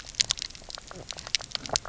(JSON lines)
{"label": "biophony, knock croak", "recorder": "SoundTrap 300"}